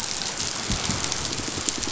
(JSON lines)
{"label": "biophony", "recorder": "SoundTrap 500"}